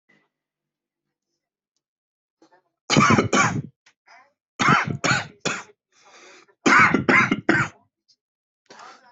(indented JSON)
{
  "expert_labels": [
    {
      "quality": "good",
      "cough_type": "wet",
      "dyspnea": false,
      "wheezing": false,
      "stridor": false,
      "choking": false,
      "congestion": false,
      "nothing": true,
      "diagnosis": "upper respiratory tract infection",
      "severity": "mild"
    }
  ],
  "age": 29,
  "gender": "male",
  "respiratory_condition": false,
  "fever_muscle_pain": true,
  "status": "COVID-19"
}